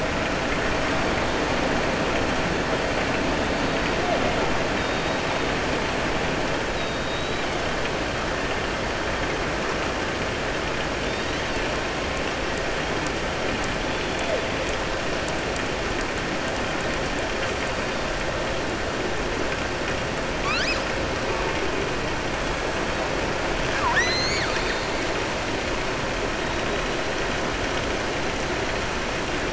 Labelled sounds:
6.7	7.4	killer whale, southern resident, 3.7 to 4.8 kHz
11.0	11.6	killer whale, southern resident, 3.0 to 5.5 kHz
23.6	24.9	killer whale, southern resident, 0.92 to 7.5 kHz

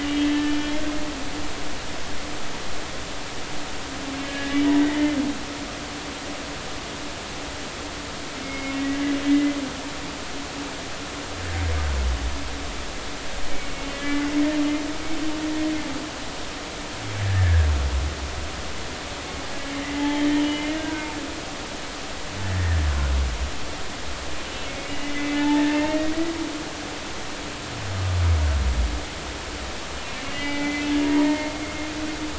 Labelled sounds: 0.0	0.8	humpback whale, 1.7 to 3.4 kHz
4.2	5.2	humpback whale, 1.6 to 2.1 kHz
8.4	9.5	humpback whale, 1.9 to 2.2 kHz
13.5	14.3	humpback whale, 1.7 to 2.8 kHz
17.2	17.7	humpback whale, 1.5 to 1.9 kHz
19.7	21.1	humpback whale, 0.80 to 3.1 kHz
22.5	22.8	humpback whale, 1.5 to 1.9 kHz
24.8	26.1	humpback whale, 0.83 to 2.8 kHz
30.2	31.5	humpback whale, 0.83 to 2.9 kHz

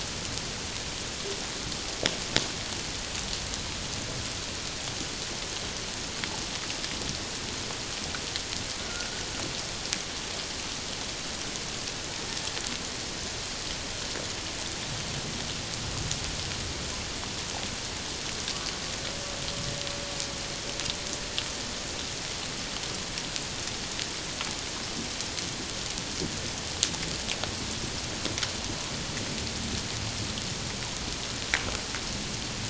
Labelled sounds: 8.8	9.1	killer whale, Bigg's (transient), 1.3 to 1.5 kHz

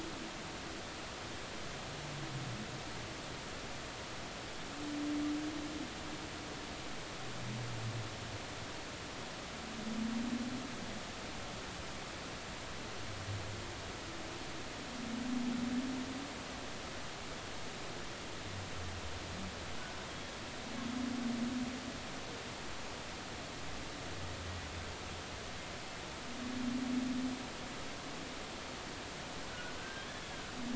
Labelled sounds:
20.1	20.3	humpback whale, 3.2 to 3.4 kHz
29.5	30.1	humpback whale, 1.4 to 1.6 kHz

